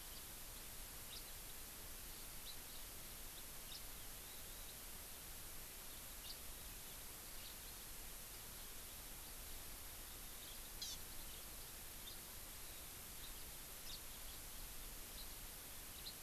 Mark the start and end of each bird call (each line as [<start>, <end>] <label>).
[0.10, 0.20] House Finch (Haemorhous mexicanus)
[1.10, 1.20] House Finch (Haemorhous mexicanus)
[2.40, 2.60] House Finch (Haemorhous mexicanus)
[3.60, 3.80] House Finch (Haemorhous mexicanus)
[6.20, 6.30] House Finch (Haemorhous mexicanus)
[10.80, 11.00] Hawaii Amakihi (Chlorodrepanis virens)
[12.00, 12.20] House Finch (Haemorhous mexicanus)
[13.20, 13.40] House Finch (Haemorhous mexicanus)
[13.90, 14.00] House Finch (Haemorhous mexicanus)
[15.10, 15.30] House Finch (Haemorhous mexicanus)
[16.00, 16.10] House Finch (Haemorhous mexicanus)